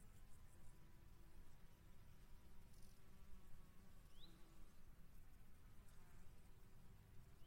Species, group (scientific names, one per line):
Chorthippus albomarginatus
Orthoptera